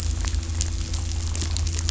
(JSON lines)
{"label": "anthrophony, boat engine", "recorder": "SoundTrap 500"}